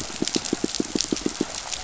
{"label": "biophony, pulse", "recorder": "SoundTrap 500"}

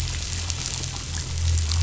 {"label": "anthrophony, boat engine", "recorder": "SoundTrap 500"}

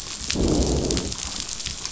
{"label": "biophony, growl", "recorder": "SoundTrap 500"}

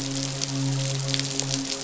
{"label": "biophony, midshipman", "recorder": "SoundTrap 500"}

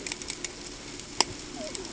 {"label": "ambient", "recorder": "HydroMoth"}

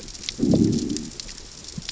{"label": "biophony, growl", "recorder": "SoundTrap 600 or HydroMoth"}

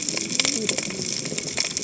{"label": "biophony, cascading saw", "recorder": "HydroMoth"}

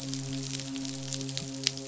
{"label": "biophony, midshipman", "recorder": "SoundTrap 500"}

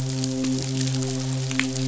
{"label": "biophony, midshipman", "recorder": "SoundTrap 500"}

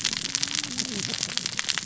{"label": "biophony, cascading saw", "recorder": "SoundTrap 600 or HydroMoth"}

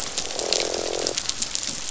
{"label": "biophony, croak", "recorder": "SoundTrap 500"}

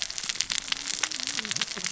{"label": "biophony, cascading saw", "recorder": "SoundTrap 600 or HydroMoth"}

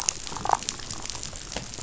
{"label": "biophony, damselfish", "recorder": "SoundTrap 500"}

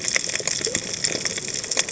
{"label": "biophony, cascading saw", "recorder": "HydroMoth"}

